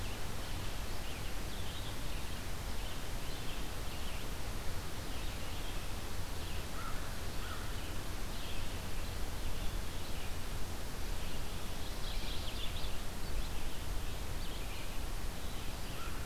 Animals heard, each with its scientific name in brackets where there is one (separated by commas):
Red-eyed Vireo (Vireo olivaceus), American Crow (Corvus brachyrhynchos), Mourning Warbler (Geothlypis philadelphia)